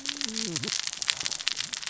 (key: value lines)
label: biophony, cascading saw
recorder: SoundTrap 600 or HydroMoth